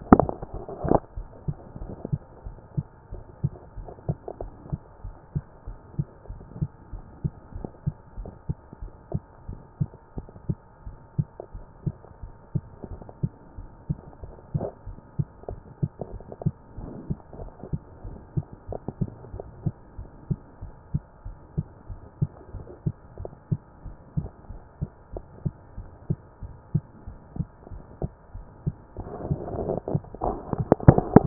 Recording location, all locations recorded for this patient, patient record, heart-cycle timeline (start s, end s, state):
aortic valve (AV)
aortic valve (AV)+pulmonary valve (PV)+tricuspid valve (TV)+mitral valve (MV)
#Age: nan
#Sex: Female
#Height: nan
#Weight: nan
#Pregnancy status: True
#Murmur: Absent
#Murmur locations: nan
#Most audible location: nan
#Systolic murmur timing: nan
#Systolic murmur shape: nan
#Systolic murmur grading: nan
#Systolic murmur pitch: nan
#Systolic murmur quality: nan
#Diastolic murmur timing: nan
#Diastolic murmur shape: nan
#Diastolic murmur grading: nan
#Diastolic murmur pitch: nan
#Diastolic murmur quality: nan
#Outcome: Abnormal
#Campaign: 2014 screening campaign
0.00	0.14	systole
0.14	0.32	S2
0.32	0.54	diastole
0.54	0.66	S1
0.66	0.84	systole
0.84	1.02	S2
1.02	1.16	diastole
1.16	1.28	S1
1.28	1.46	systole
1.46	1.56	S2
1.56	1.80	diastole
1.80	1.92	S1
1.92	2.10	systole
2.10	2.20	S2
2.20	2.44	diastole
2.44	2.56	S1
2.56	2.76	systole
2.76	2.88	S2
2.88	3.12	diastole
3.12	3.22	S1
3.22	3.42	systole
3.42	3.52	S2
3.52	3.76	diastole
3.76	3.88	S1
3.88	4.08	systole
4.08	4.18	S2
4.18	4.40	diastole
4.40	4.52	S1
4.52	4.70	systole
4.70	4.80	S2
4.80	5.04	diastole
5.04	5.14	S1
5.14	5.34	systole
5.34	5.44	S2
5.44	5.66	diastole
5.66	5.76	S1
5.76	5.96	systole
5.96	6.06	S2
6.06	6.28	diastole
6.28	6.40	S1
6.40	6.58	systole
6.58	6.70	S2
6.70	6.92	diastole
6.92	7.02	S1
7.02	7.22	systole
7.22	7.32	S2
7.32	7.54	diastole
7.54	7.66	S1
7.66	7.86	systole
7.86	7.96	S2
7.96	8.18	diastole
8.18	8.30	S1
8.30	8.48	systole
8.48	8.58	S2
8.58	8.82	diastole
8.82	8.92	S1
8.92	9.12	systole
9.12	9.22	S2
9.22	9.48	diastole
9.48	9.60	S1
9.60	9.80	systole
9.80	9.90	S2
9.90	10.16	diastole
10.16	10.28	S1
10.28	10.48	systole
10.48	10.58	S2
10.58	10.84	diastole
10.84	10.96	S1
10.96	11.18	systole
11.18	11.28	S2
11.28	11.54	diastole
11.54	11.64	S1
11.64	11.84	systole
11.84	11.96	S2
11.96	12.22	diastole
12.22	12.32	S1
12.32	12.54	systole
12.54	12.64	S2
12.64	12.88	diastole
12.88	13.00	S1
13.00	13.22	systole
13.22	13.32	S2
13.32	13.56	diastole
13.56	13.68	S1
13.68	13.88	systole
13.88	13.98	S2
13.98	14.22	diastole
14.22	14.34	S1
14.34	14.56	systole
14.56	14.70	S2
14.70	14.88	diastole
14.88	14.98	S1
14.98	15.18	systole
15.18	15.28	S2
15.28	15.50	diastole
15.50	15.62	S1
15.62	15.82	systole
15.82	15.90	S2
15.90	16.12	diastole
16.12	16.22	S1
16.22	16.42	systole
16.42	16.54	S2
16.54	16.78	diastole
16.78	16.90	S1
16.90	17.08	systole
17.08	17.18	S2
17.18	17.40	diastole
17.40	17.52	S1
17.52	17.72	systole
17.72	17.82	S2
17.82	18.06	diastole
18.06	18.18	S1
18.18	18.36	systole
18.36	18.46	S2
18.46	18.70	diastole
18.70	18.80	S1
18.80	19.00	systole
19.00	19.10	S2
19.10	19.32	diastole
19.32	19.44	S1
19.44	19.64	systole
19.64	19.74	S2
19.74	19.98	diastole
19.98	20.08	S1
20.08	20.28	systole
20.28	20.38	S2
20.38	20.62	diastole
20.62	20.72	S1
20.72	20.92	systole
20.92	21.02	S2
21.02	21.26	diastole
21.26	21.36	S1
21.36	21.56	systole
21.56	21.66	S2
21.66	21.90	diastole
21.90	22.00	S1
22.00	22.20	systole
22.20	22.30	S2
22.30	22.54	diastole
22.54	22.66	S1
22.66	22.84	systole
22.84	22.94	S2
22.94	23.18	diastole
23.18	23.30	S1
23.30	23.50	systole
23.50	23.60	S2
23.60	23.84	diastole
23.84	23.96	S1
23.96	24.18	systole
24.18	24.30	S2
24.30	24.50	diastole
24.50	24.60	S1
24.60	24.80	systole
24.80	24.90	S2
24.90	25.14	diastole
25.14	25.24	S1
25.24	25.44	systole
25.44	25.54	S2
25.54	25.78	diastole
25.78	25.88	S1
25.88	26.08	systole
26.08	26.18	S2
26.18	26.42	diastole
26.42	26.54	S1
26.54	26.74	systole
26.74	26.84	S2
26.84	27.08	diastole
27.08	27.18	S1
27.18	27.36	systole
27.36	27.48	S2
27.48	27.72	diastole
27.72	27.82	S1
27.82	28.02	systole
28.02	28.12	S2
28.12	28.36	diastole
28.36	28.46	S1
28.46	28.66	systole
28.66	28.76	S2
28.76	28.98	diastole
28.98	29.10	S1
29.10	29.28	systole
29.28	29.42	S2
29.42	29.58	diastole
29.58	29.78	S1
29.78	29.92	systole
29.92	30.02	S2
30.02	30.22	diastole
30.22	30.40	S1
30.40	30.58	systole
30.58	30.72	S2
30.72	31.26	diastole